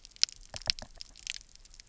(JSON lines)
{"label": "biophony, knock", "recorder": "SoundTrap 300"}